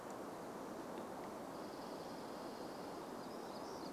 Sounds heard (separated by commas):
warbler song, Dark-eyed Junco song